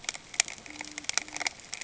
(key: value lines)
label: ambient
recorder: HydroMoth